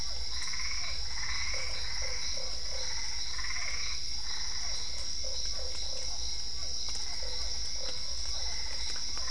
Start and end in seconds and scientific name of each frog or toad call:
0.0	9.3	Dendropsophus cruzi
0.0	9.3	Physalaemus cuvieri
0.3	5.1	Boana albopunctata
1.5	2.9	Boana lundii
5.2	6.2	Boana lundii
7.1	8.0	Boana lundii
8.3	9.3	Boana albopunctata